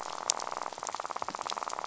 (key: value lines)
label: biophony, rattle
recorder: SoundTrap 500